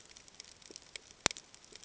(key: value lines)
label: ambient
recorder: HydroMoth